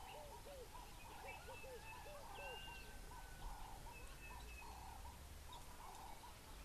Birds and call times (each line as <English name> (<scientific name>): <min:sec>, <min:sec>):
Ring-necked Dove (Streptopelia capicola): 0:01.2, 0:04.9
Sulphur-breasted Bushshrike (Telophorus sulfureopectus): 0:04.3